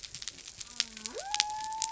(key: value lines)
label: biophony
recorder: SoundTrap 300